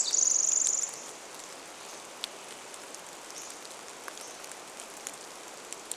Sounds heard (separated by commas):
rain, Hammond's Flycatcher song, Pacific Wren song